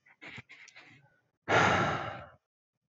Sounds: Sigh